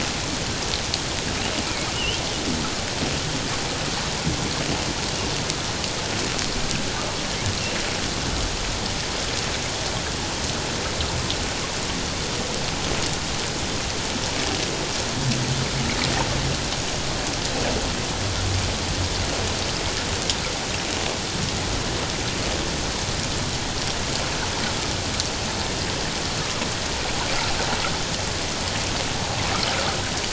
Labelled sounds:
1.9	2.2	humpback whale, 2.7 to 3.3 kHz

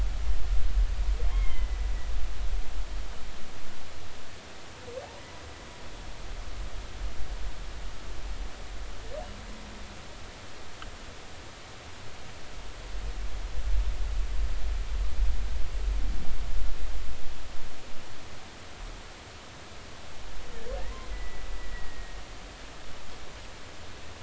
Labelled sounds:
1.3	1.8	humpback whale, 1.0 to 3.3 kHz
21.1	22.2	humpback whale, 1.8 to 2.1 kHz

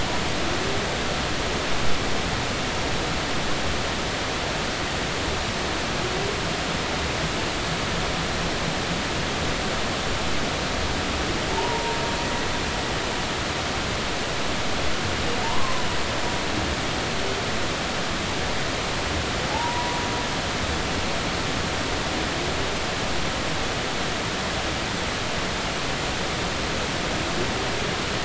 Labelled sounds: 12.5	13.0	humpback whale, 0.83 to 1.0 kHz
15.4	15.8	humpback whale, 0.86 to 1.1 kHz
19.5	20.0	humpback whale, 0.80 to 1.0 kHz

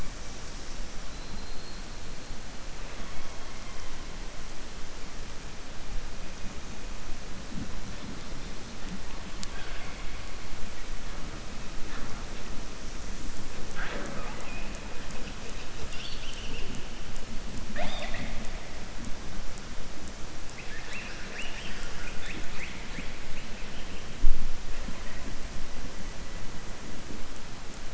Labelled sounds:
1.1	1.8	killer whale, southern resident, 4.0 to 4.4 kHz
9.3	10.1	killer whale, southern resident, 0.70 to 3.9 kHz
15.8	16.7	killer whale, southern resident, 2.6 to 5.6 kHz

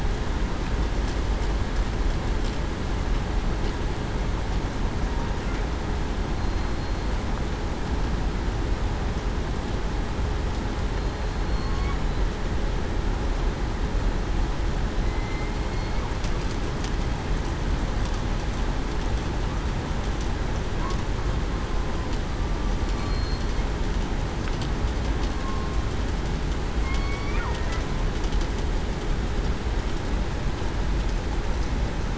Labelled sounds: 6.4	7.1	killer whale, southern resident, 4.1 to 4.3 kHz
11.4	11.9	killer whale, southern resident, 4.2 to 4.4 kHz
15.0	15.6	killer whale, southern resident, 2.0 to 2.2 kHz
23.0	23.5	killer whale, southern resident, 4.2 to 4.3 kHz
26.8	27.3	killer whale, southern resident, 1.1 to 3.4 kHz

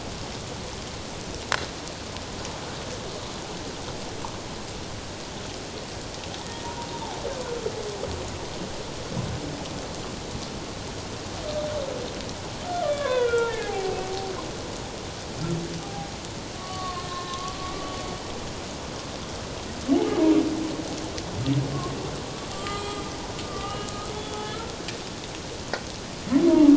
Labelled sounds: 6.4	6.7	humpback whale, 1.8 to 1.9 kHz
12.8	14.0	humpback whale, 0.78 to 3.6 kHz
15.8	17.7	humpback whale, 0.78 to 4.0 kHz
22.5	24.5	humpback whale, 1.1 to 7.8 kHz

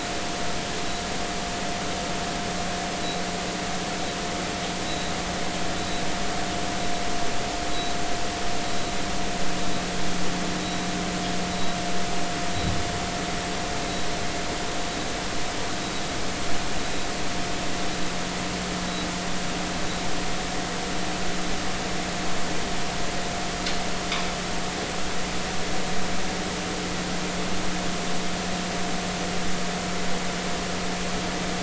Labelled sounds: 4.8	5.1	vessel noise, 3.8 to 4.1 kHz
5.8	6.0	vessel noise, 3.8 to 4.0 kHz
7.7	7.9	vessel noise, 3.8 to 4.0 kHz
10.6	10.9	vessel noise, 3.8 to 3.9 kHz

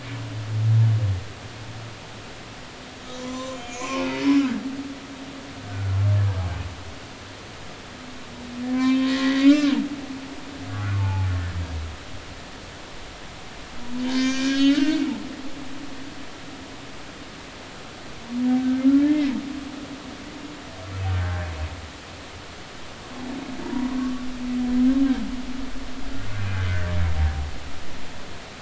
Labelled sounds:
3.2	4.7	humpback whale, 0.86 to 7.4 kHz
5.7	5.9	humpback whale, 1.3 to 1.6 kHz
8.7	9.7	humpback whale, 0.99 to 4.8 kHz
10.7	11.3	humpback whale, 0.80 to 1.6 kHz
14.0	15.0	humpback whale, 0.99 to 6.7 kHz
18.6	19.3	humpback whale, 1.5 to 2.2 kHz
21.1	21.5	humpback whale, 1.5 to 1.8 kHz
23.6	24.2	humpback whale, 0.86 to 1.2 kHz

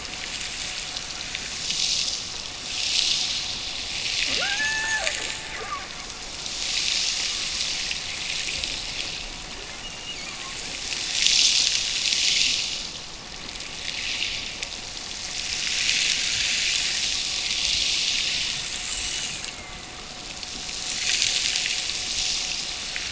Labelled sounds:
4.3	5.9	killer whale, Bigg's (transient), Gulf of Alaska transient, 0.18 to 1.9 kHz
9.8	10.6	killer whale, Bigg's (transient), Gulf of Alaska transient, 1.6 to 3.0 kHz
19.1	20.0	killer whale, Bigg's (transient), Gulf of Alaska transient, 1.8 to 2.5 kHz

